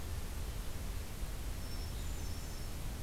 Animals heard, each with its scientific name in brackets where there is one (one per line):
Hermit Thrush (Catharus guttatus)